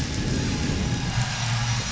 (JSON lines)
{"label": "anthrophony, boat engine", "recorder": "SoundTrap 500"}